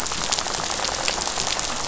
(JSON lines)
{"label": "biophony, rattle", "recorder": "SoundTrap 500"}